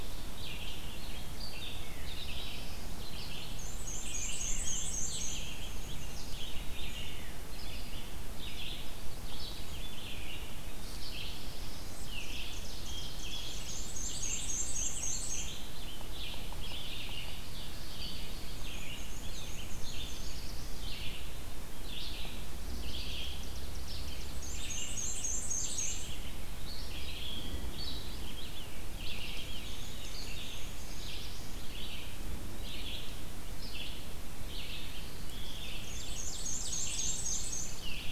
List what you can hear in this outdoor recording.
Red-eyed Vireo, Black-throated Blue Warbler, Black-and-white Warbler, Ovenbird, Pine Warbler